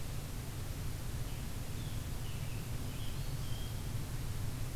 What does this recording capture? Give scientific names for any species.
Piranga olivacea, Setophaga virens